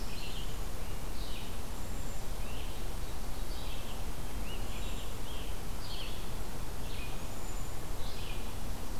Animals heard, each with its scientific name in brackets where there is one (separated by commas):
Scarlet Tanager (Piranga olivacea), Red-eyed Vireo (Vireo olivaceus)